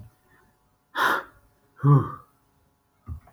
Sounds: Sigh